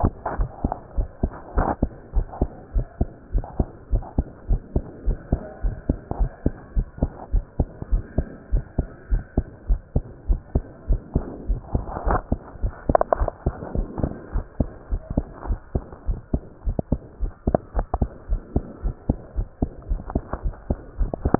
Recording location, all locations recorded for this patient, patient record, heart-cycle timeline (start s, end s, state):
pulmonary valve (PV)
aortic valve (AV)+pulmonary valve (PV)+tricuspid valve (TV)+mitral valve (MV)
#Age: Child
#Sex: Male
#Height: 148.0 cm
#Weight: 35.8 kg
#Pregnancy status: False
#Murmur: Absent
#Murmur locations: nan
#Most audible location: nan
#Systolic murmur timing: nan
#Systolic murmur shape: nan
#Systolic murmur grading: nan
#Systolic murmur pitch: nan
#Systolic murmur quality: nan
#Diastolic murmur timing: nan
#Diastolic murmur shape: nan
#Diastolic murmur grading: nan
#Diastolic murmur pitch: nan
#Diastolic murmur quality: nan
#Outcome: Abnormal
#Campaign: 2015 screening campaign
0.00	0.36	unannotated
0.36	0.50	S1
0.50	0.60	systole
0.60	0.72	S2
0.72	0.96	diastole
0.96	1.10	S1
1.10	1.20	systole
1.20	1.34	S2
1.34	1.54	diastole
1.54	1.70	S1
1.70	1.80	systole
1.80	1.90	S2
1.90	2.14	diastole
2.14	2.28	S1
2.28	2.38	systole
2.38	2.50	S2
2.50	2.74	diastole
2.74	2.88	S1
2.88	2.98	systole
2.98	3.08	S2
3.08	3.32	diastole
3.32	3.46	S1
3.46	3.56	systole
3.56	3.68	S2
3.68	3.90	diastole
3.90	4.04	S1
4.04	4.16	systole
4.16	4.26	S2
4.26	4.48	diastole
4.48	4.62	S1
4.62	4.72	systole
4.72	4.84	S2
4.84	5.06	diastole
5.06	5.20	S1
5.20	5.30	systole
5.30	5.40	S2
5.40	5.62	diastole
5.62	5.76	S1
5.76	5.86	systole
5.86	5.96	S2
5.96	6.18	diastole
6.18	6.32	S1
6.32	6.42	systole
6.42	6.54	S2
6.54	6.74	diastole
6.74	6.88	S1
6.88	7.00	systole
7.00	7.10	S2
7.10	7.32	diastole
7.32	7.44	S1
7.44	7.56	systole
7.56	7.68	S2
7.68	7.90	diastole
7.90	8.04	S1
8.04	8.16	systole
8.16	8.26	S2
8.26	8.52	diastole
8.52	8.64	S1
8.64	8.74	systole
8.74	8.86	S2
8.86	9.10	diastole
9.10	9.24	S1
9.24	9.36	systole
9.36	9.46	S2
9.46	9.68	diastole
9.68	9.82	S1
9.82	9.92	systole
9.92	10.04	S2
10.04	10.26	diastole
10.26	10.42	S1
10.42	10.54	systole
10.54	10.64	S2
10.64	10.86	diastole
10.86	11.02	S1
11.02	11.14	systole
11.14	11.24	S2
11.24	11.48	diastole
11.48	11.62	S1
11.62	11.72	systole
11.72	11.86	S2
11.86	11.98	diastole
11.98	21.39	unannotated